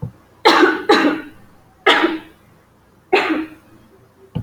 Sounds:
Cough